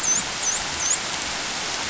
{"label": "biophony, dolphin", "recorder": "SoundTrap 500"}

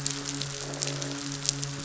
{"label": "biophony, croak", "recorder": "SoundTrap 500"}
{"label": "biophony, midshipman", "recorder": "SoundTrap 500"}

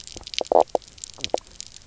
{"label": "biophony, knock croak", "recorder": "SoundTrap 300"}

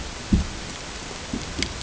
{"label": "ambient", "recorder": "HydroMoth"}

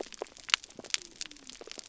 {"label": "biophony", "recorder": "SoundTrap 300"}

